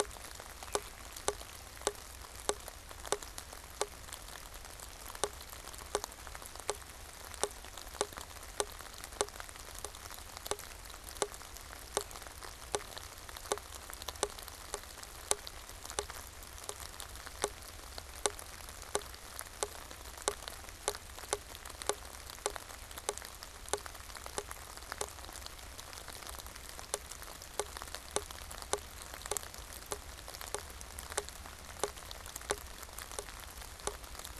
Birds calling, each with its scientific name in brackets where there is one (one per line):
Veery (Catharus fuscescens)